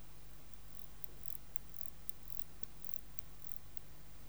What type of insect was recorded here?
orthopteran